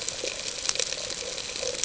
{"label": "ambient", "recorder": "HydroMoth"}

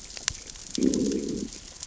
{"label": "biophony, growl", "recorder": "SoundTrap 600 or HydroMoth"}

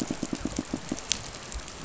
{"label": "biophony, pulse", "recorder": "SoundTrap 500"}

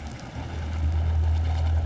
{"label": "anthrophony, boat engine", "recorder": "SoundTrap 500"}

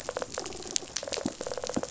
{"label": "biophony, rattle response", "recorder": "SoundTrap 500"}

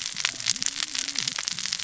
{"label": "biophony, cascading saw", "recorder": "SoundTrap 600 or HydroMoth"}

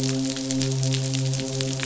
{"label": "biophony, midshipman", "recorder": "SoundTrap 500"}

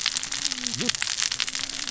{"label": "biophony, cascading saw", "recorder": "SoundTrap 600 or HydroMoth"}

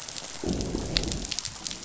{"label": "biophony, growl", "recorder": "SoundTrap 500"}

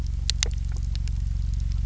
{"label": "anthrophony, boat engine", "recorder": "SoundTrap 300"}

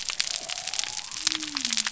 {"label": "biophony", "recorder": "SoundTrap 300"}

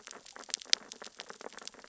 {"label": "biophony, sea urchins (Echinidae)", "recorder": "SoundTrap 600 or HydroMoth"}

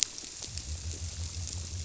{"label": "biophony", "recorder": "SoundTrap 300"}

